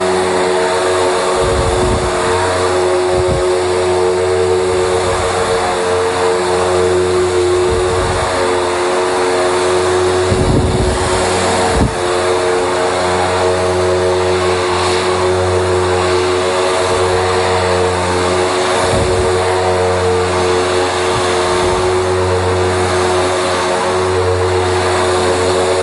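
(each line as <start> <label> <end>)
0.0 A mechanical and rhythmic hum from a vacuum cleaner indoors. 25.8
1.4 Wind blows, creating a deep rumbling sound. 2.2
10.4 Wind blowing, creating a deep rumbling sound. 12.1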